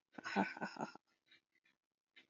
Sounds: Laughter